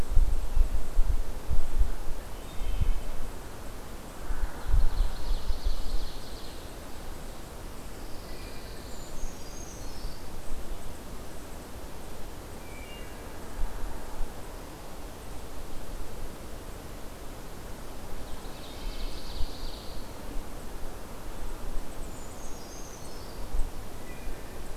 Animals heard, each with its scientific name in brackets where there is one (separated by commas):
Wood Thrush (Hylocichla mustelina), Ovenbird (Seiurus aurocapilla), Brown Creeper (Certhia americana), Pine Warbler (Setophaga pinus)